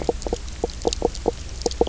{"label": "biophony, knock croak", "recorder": "SoundTrap 300"}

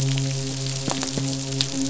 {"label": "biophony, midshipman", "recorder": "SoundTrap 500"}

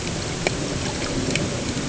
{"label": "ambient", "recorder": "HydroMoth"}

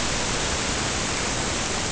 {"label": "ambient", "recorder": "HydroMoth"}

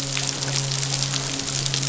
{"label": "biophony, midshipman", "recorder": "SoundTrap 500"}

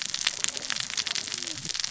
{"label": "biophony, cascading saw", "recorder": "SoundTrap 600 or HydroMoth"}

